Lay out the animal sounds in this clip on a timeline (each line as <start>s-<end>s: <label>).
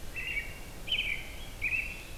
0.0s-2.2s: American Robin (Turdus migratorius)